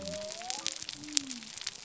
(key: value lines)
label: biophony
recorder: SoundTrap 300